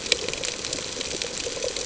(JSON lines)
{"label": "ambient", "recorder": "HydroMoth"}